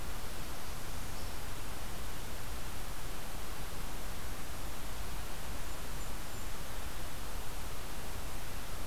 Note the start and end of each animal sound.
[5.50, 6.62] Golden-crowned Kinglet (Regulus satrapa)

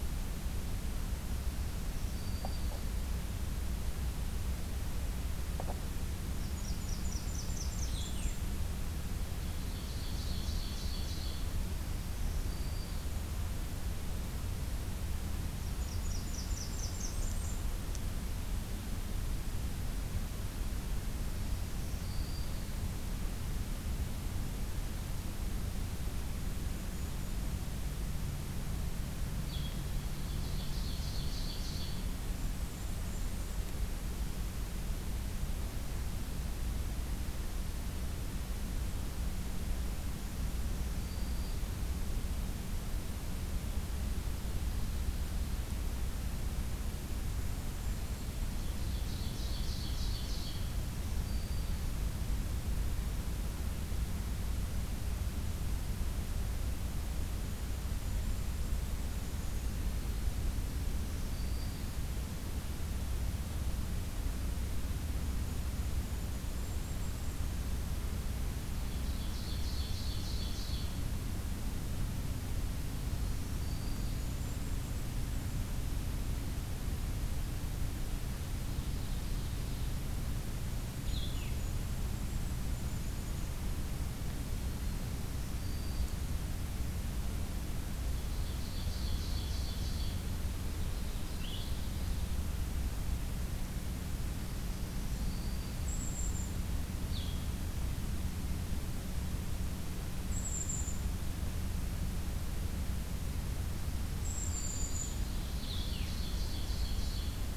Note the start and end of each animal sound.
[1.63, 3.02] Black-throated Green Warbler (Setophaga virens)
[6.22, 8.51] Blackburnian Warbler (Setophaga fusca)
[7.83, 8.40] Blue-headed Vireo (Vireo solitarius)
[9.33, 11.53] Ovenbird (Seiurus aurocapilla)
[11.94, 13.19] Black-throated Green Warbler (Setophaga virens)
[15.56, 17.68] Blackburnian Warbler (Setophaga fusca)
[21.50, 22.77] Black-throated Green Warbler (Setophaga virens)
[25.99, 27.61] Golden-crowned Kinglet (Regulus satrapa)
[29.36, 30.04] Blue-headed Vireo (Vireo solitarius)
[30.11, 32.13] Ovenbird (Seiurus aurocapilla)
[32.12, 33.83] Golden-crowned Kinglet (Regulus satrapa)
[40.48, 41.65] Black-throated Green Warbler (Setophaga virens)
[46.96, 48.55] Golden-crowned Kinglet (Regulus satrapa)
[48.60, 50.80] Ovenbird (Seiurus aurocapilla)
[50.80, 52.00] Black-throated Green Warbler (Setophaga virens)
[56.97, 60.14] Golden-crowned Kinglet (Regulus satrapa)
[60.72, 62.04] Black-throated Green Warbler (Setophaga virens)
[65.88, 67.46] Golden-crowned Kinglet (Regulus satrapa)
[68.67, 71.12] Ovenbird (Seiurus aurocapilla)
[73.14, 74.25] Black-throated Green Warbler (Setophaga virens)
[73.62, 75.46] Golden-crowned Kinglet (Regulus satrapa)
[78.55, 80.07] Ovenbird (Seiurus aurocapilla)
[80.85, 81.61] Blue-headed Vireo (Vireo solitarius)
[80.87, 83.53] Golden-crowned Kinglet (Regulus satrapa)
[85.16, 86.21] Black-throated Green Warbler (Setophaga virens)
[88.08, 92.29] Ovenbird (Seiurus aurocapilla)
[91.21, 91.91] Blue-headed Vireo (Vireo solitarius)
[94.56, 95.92] Black-throated Green Warbler (Setophaga virens)
[95.58, 96.68] Golden-crowned Kinglet (Regulus satrapa)
[96.96, 97.51] Blue-headed Vireo (Vireo solitarius)
[100.20, 100.96] Golden-crowned Kinglet (Regulus satrapa)
[103.90, 105.15] Black-throated Green Warbler (Setophaga virens)
[104.11, 105.25] Golden-crowned Kinglet (Regulus satrapa)
[105.43, 106.23] Blue-headed Vireo (Vireo solitarius)
[105.54, 107.49] Ovenbird (Seiurus aurocapilla)

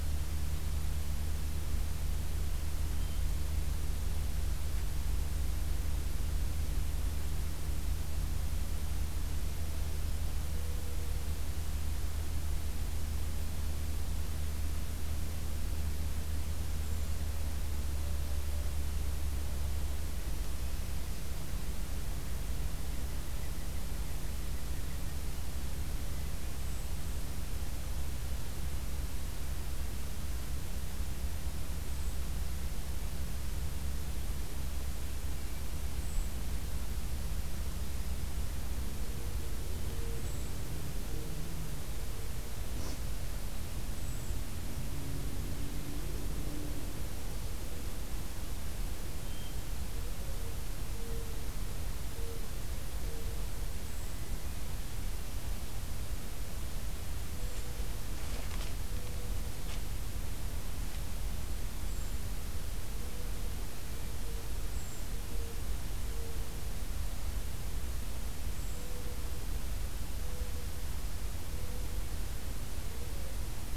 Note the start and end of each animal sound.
[16.77, 17.25] Brown Creeper (Certhia americana)
[26.35, 27.39] Brown Creeper (Certhia americana)
[31.80, 32.19] Brown Creeper (Certhia americana)
[35.87, 36.37] Brown Creeper (Certhia americana)
[40.06, 40.63] Brown Creeper (Certhia americana)
[43.83, 44.40] Brown Creeper (Certhia americana)
[53.72, 54.49] Brown Creeper (Certhia americana)
[61.70, 62.28] Brown Creeper (Certhia americana)
[64.53, 65.07] Brown Creeper (Certhia americana)
[68.47, 68.95] Brown Creeper (Certhia americana)

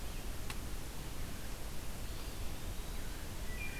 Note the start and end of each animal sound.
[0.00, 3.80] Red-eyed Vireo (Vireo olivaceus)
[1.97, 3.22] Eastern Wood-Pewee (Contopus virens)
[3.26, 3.80] Wood Thrush (Hylocichla mustelina)

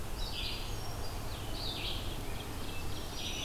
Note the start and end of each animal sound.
[0.00, 1.29] Hermit Thrush (Catharus guttatus)
[0.11, 3.44] Red-eyed Vireo (Vireo olivaceus)
[1.97, 3.44] Ovenbird (Seiurus aurocapilla)
[2.67, 3.44] Black-throated Green Warbler (Setophaga virens)

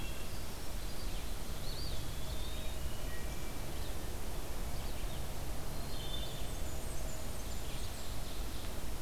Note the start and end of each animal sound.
[0.00, 9.02] Red-eyed Vireo (Vireo olivaceus)
[1.44, 3.04] Eastern Wood-Pewee (Contopus virens)
[2.67, 3.69] Wood Thrush (Hylocichla mustelina)
[5.72, 6.49] Wood Thrush (Hylocichla mustelina)
[6.17, 8.24] Blackburnian Warbler (Setophaga fusca)
[7.19, 8.79] Ovenbird (Seiurus aurocapilla)

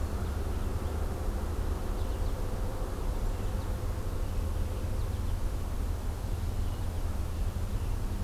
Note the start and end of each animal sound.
[1.87, 2.43] American Goldfinch (Spinus tristis)
[3.25, 3.83] American Goldfinch (Spinus tristis)
[4.85, 5.32] American Goldfinch (Spinus tristis)
[6.53, 7.06] American Goldfinch (Spinus tristis)

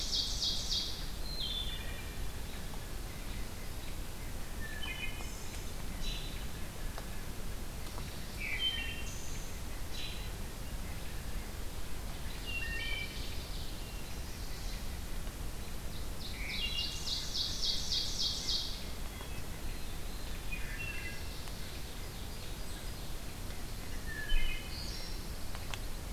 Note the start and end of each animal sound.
[0.00, 1.16] Ovenbird (Seiurus aurocapilla)
[1.07, 1.96] Wood Thrush (Hylocichla mustelina)
[4.52, 5.72] Wood Thrush (Hylocichla mustelina)
[5.87, 6.45] American Robin (Turdus migratorius)
[8.24, 9.57] Wood Thrush (Hylocichla mustelina)
[9.82, 10.33] American Robin (Turdus migratorius)
[12.02, 14.00] Ovenbird (Seiurus aurocapilla)
[12.36, 13.26] Wood Thrush (Hylocichla mustelina)
[14.03, 14.82] Chestnut-sided Warbler (Setophaga pensylvanica)
[16.24, 19.07] Ovenbird (Seiurus aurocapilla)
[16.42, 17.34] Wood Thrush (Hylocichla mustelina)
[19.51, 20.92] Veery (Catharus fuscescens)
[20.48, 21.17] Wood Thrush (Hylocichla mustelina)
[21.43, 23.26] Ovenbird (Seiurus aurocapilla)
[24.01, 25.12] Wood Thrush (Hylocichla mustelina)
[24.88, 26.04] Pine Warbler (Setophaga pinus)

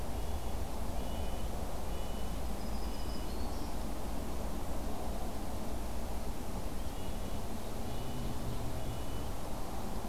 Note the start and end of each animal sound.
[0.00, 3.32] Red-breasted Nuthatch (Sitta canadensis)
[2.56, 3.66] Black-throated Green Warbler (Setophaga virens)
[6.79, 9.31] Red-breasted Nuthatch (Sitta canadensis)
[7.30, 8.84] Ovenbird (Seiurus aurocapilla)

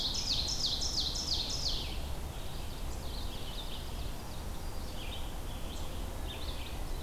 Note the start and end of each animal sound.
[0.00, 1.97] Ovenbird (Seiurus aurocapilla)
[0.00, 7.03] Red-eyed Vireo (Vireo olivaceus)
[2.33, 4.81] Ovenbird (Seiurus aurocapilla)

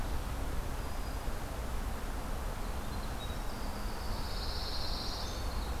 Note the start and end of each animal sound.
[0.66, 1.53] Black-throated Green Warbler (Setophaga virens)
[2.66, 5.80] Winter Wren (Troglodytes hiemalis)
[3.96, 5.41] Pine Warbler (Setophaga pinus)

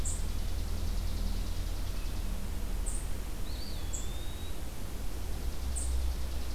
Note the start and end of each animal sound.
[0.00, 2.36] Chipping Sparrow (Spizella passerina)
[0.00, 6.54] Red-eyed Vireo (Vireo olivaceus)
[0.00, 6.54] unidentified call
[3.19, 4.79] Eastern Wood-Pewee (Contopus virens)
[5.09, 6.54] Chipping Sparrow (Spizella passerina)

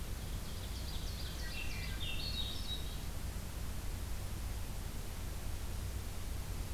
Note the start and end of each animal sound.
[0.00, 1.94] Ovenbird (Seiurus aurocapilla)
[1.23, 2.97] Swainson's Thrush (Catharus ustulatus)

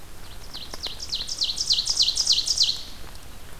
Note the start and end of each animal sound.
[0.00, 2.84] Ovenbird (Seiurus aurocapilla)

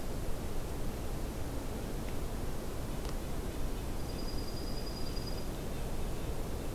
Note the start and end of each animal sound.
[3.09, 6.74] Red-breasted Nuthatch (Sitta canadensis)
[3.80, 5.59] Dark-eyed Junco (Junco hyemalis)

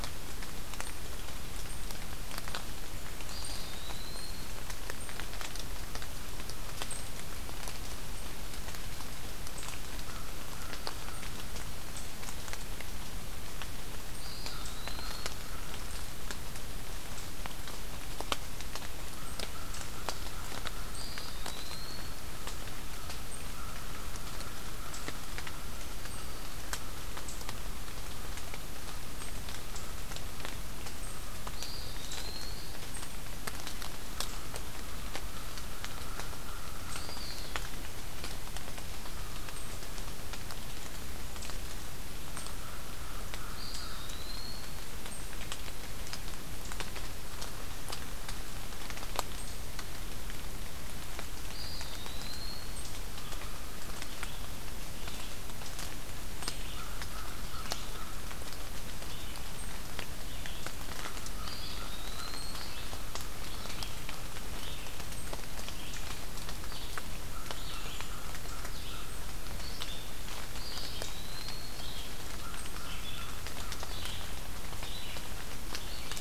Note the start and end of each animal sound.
[3.17, 4.65] Eastern Wood-Pewee (Contopus virens)
[9.97, 11.42] American Crow (Corvus brachyrhynchos)
[14.00, 15.50] Eastern Wood-Pewee (Contopus virens)
[14.47, 15.93] American Crow (Corvus brachyrhynchos)
[19.01, 27.15] American Crow (Corvus brachyrhynchos)
[20.75, 22.30] Eastern Wood-Pewee (Contopus virens)
[25.35, 26.62] Black-throated Green Warbler (Setophaga virens)
[30.86, 31.60] American Crow (Corvus brachyrhynchos)
[31.40, 32.86] Eastern Wood-Pewee (Contopus virens)
[33.98, 37.20] American Crow (Corvus brachyrhynchos)
[36.85, 37.60] Eastern Wood-Pewee (Contopus virens)
[42.21, 44.18] American Crow (Corvus brachyrhynchos)
[43.31, 45.01] Eastern Wood-Pewee (Contopus virens)
[51.36, 53.01] Eastern Wood-Pewee (Contopus virens)
[53.09, 54.02] American Crow (Corvus brachyrhynchos)
[53.98, 76.20] Red-eyed Vireo (Vireo olivaceus)
[56.62, 58.15] American Crow (Corvus brachyrhynchos)
[60.88, 62.58] American Crow (Corvus brachyrhynchos)
[61.31, 62.89] Eastern Wood-Pewee (Contopus virens)
[67.27, 69.22] American Crow (Corvus brachyrhynchos)
[70.50, 71.88] Eastern Wood-Pewee (Contopus virens)
[72.22, 74.13] American Crow (Corvus brachyrhynchos)

